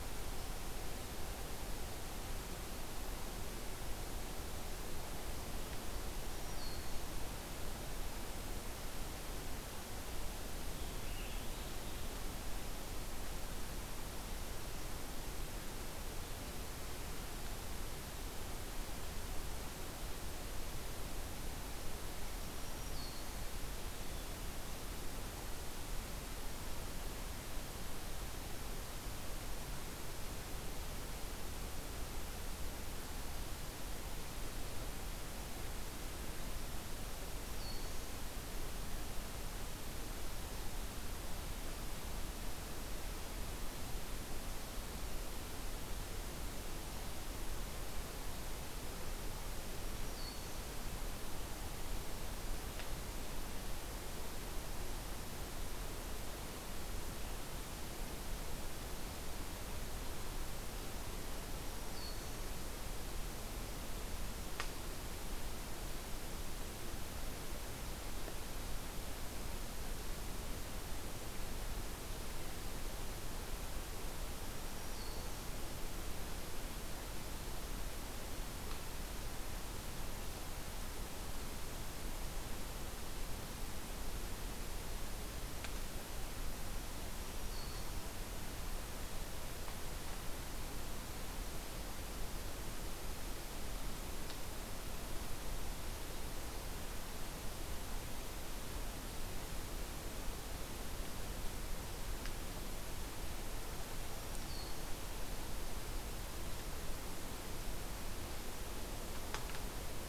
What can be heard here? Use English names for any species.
Black-throated Green Warbler, Scarlet Tanager